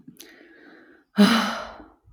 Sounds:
Sigh